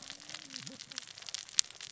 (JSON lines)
{"label": "biophony, cascading saw", "recorder": "SoundTrap 600 or HydroMoth"}